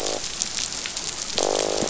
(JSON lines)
{"label": "biophony, croak", "recorder": "SoundTrap 500"}